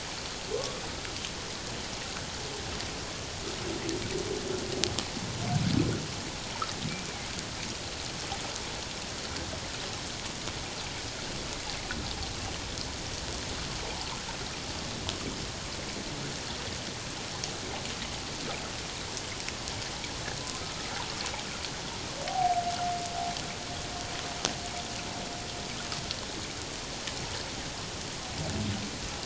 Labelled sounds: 22.3	22.6	humpback whale, 0.78 to 0.84 kHz

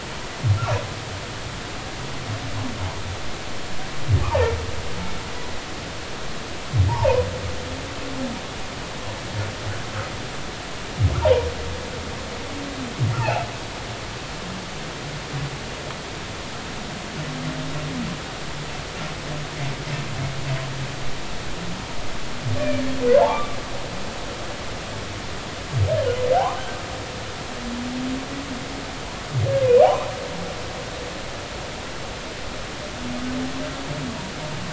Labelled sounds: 5.3	5.5	humpback whale, 0.80 to 0.99 kHz
6.9	7.2	humpback whale, 0.80 to 1.2 kHz
11.2	11.5	humpback whale, 0.83 to 1.0 kHz
13.2	13.4	humpback whale, 0.80 to 0.99 kHz
22.6	22.8	humpback whale, 2.3 to 2.5 kHz
23.1	23.5	humpback whale, 0.80 to 1.2 kHz
26.4	26.6	humpback whale, 0.80 to 1.3 kHz
29.7	30.1	humpback whale, 0.80 to 2.5 kHz

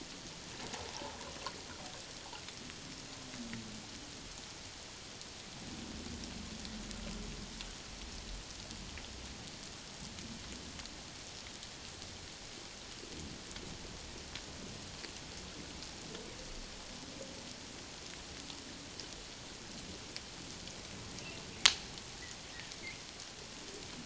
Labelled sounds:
0.7	1.2	humpback whale, 0.78 to 1.0 kHz

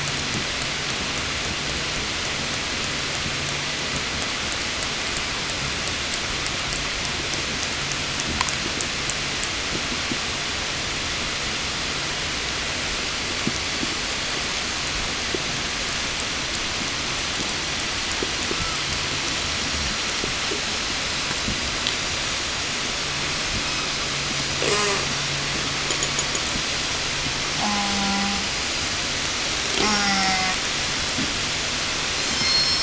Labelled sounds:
23.3	24.1	killer whale, southern resident, 0 to 8.0 kHz
24.4	25.2	killer whale, southern resident, 0 to 8.0 kHz
27.3	28.5	killer whale, southern resident, call S04, 0 to 8.0 kHz
29.5	30.8	killer whale, southern resident, call S04, 0 to 8.0 kHz
32.0	32.8	killer whale, southern resident, 0 to 8.0 kHz

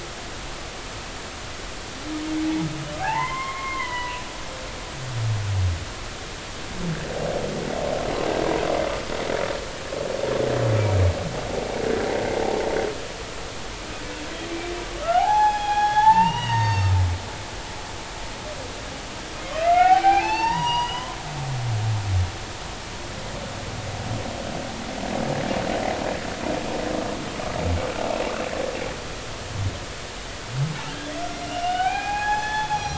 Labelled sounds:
3.0	4.2	humpback whale, 0.80 to 3.2 kHz
15.1	16.9	humpback whale, 0.80 to 6.5 kHz
19.6	21.1	humpback whale, 0.80 to 5.9 kHz
30.9	32.9	humpback whale, 0.80 to 6.0 kHz

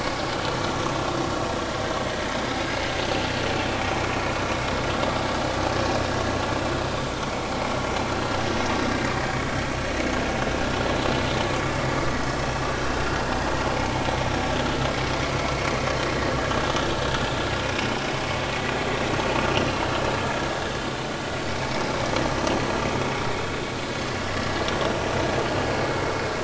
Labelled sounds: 2.5	2.8	vessel noise, 4.8 to 4.9 kHz
21.5	21.8	vessel noise, 2.1 to 2.4 kHz

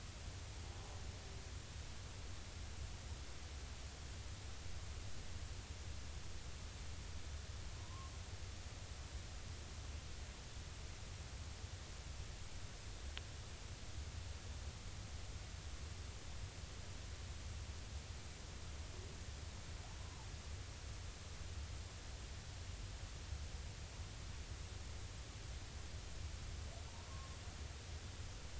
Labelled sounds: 7.8	8.1	humpback whale, 0.93 to 1.2 kHz
20.0	20.3	humpback whale, 0.80 to 1.1 kHz
27.1	27.4	humpback whale, 1.0 to 1.2 kHz

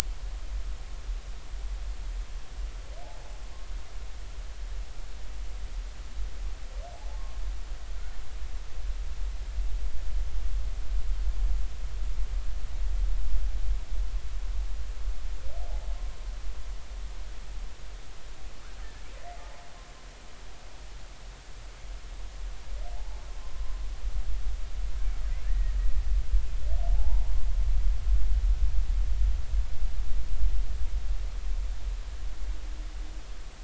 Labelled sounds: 7.1	7.4	humpback whale, 1.0 to 1.1 kHz
23.0	23.2	humpback whale, 0.80 to 1.1 kHz
25.4	25.7	humpback whale, 1.7 to 2.0 kHz
27.0	27.2	humpback whale, 0.80 to 0.99 kHz

